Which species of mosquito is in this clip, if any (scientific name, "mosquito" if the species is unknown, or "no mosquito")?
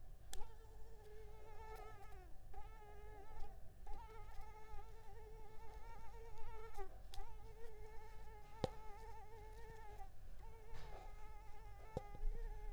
Culex pipiens complex